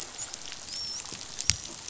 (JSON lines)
{"label": "biophony, dolphin", "recorder": "SoundTrap 500"}